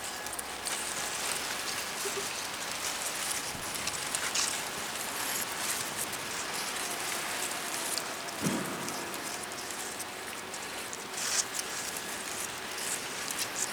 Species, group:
Gryllotalpa africana
Orthoptera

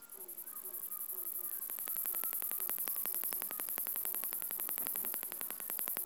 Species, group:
Ducetia japonica
Orthoptera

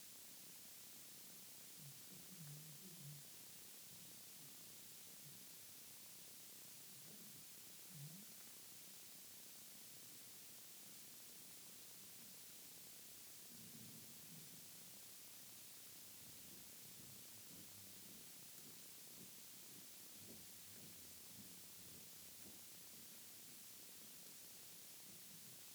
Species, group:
Pteronemobius lineolatus
Orthoptera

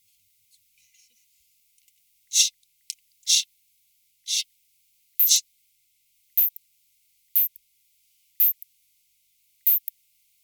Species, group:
Isophya rhodopensis
Orthoptera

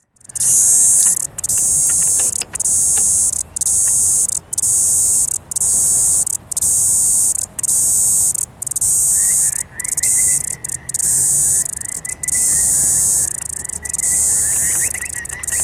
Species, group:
Atrapsalta corticina
Cicadidae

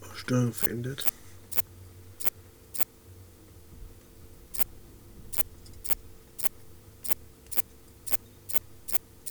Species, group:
Tessellana orina
Orthoptera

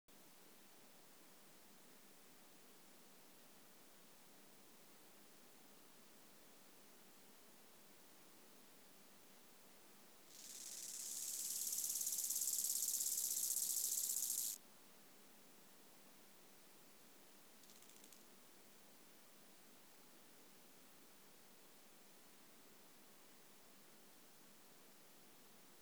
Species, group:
Chorthippus biguttulus
Orthoptera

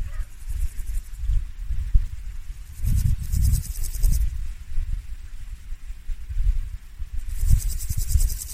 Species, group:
Pseudochorthippus parallelus
Orthoptera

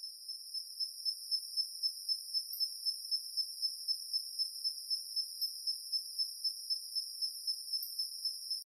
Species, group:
Anaxipha tinnulenta
Orthoptera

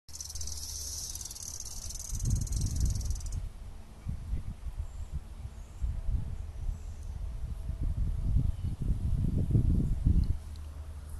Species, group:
Magicicada cassini
Cicadidae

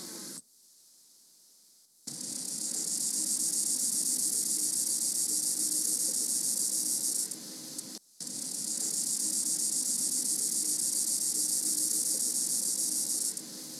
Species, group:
Gomphocerippus rufus
Orthoptera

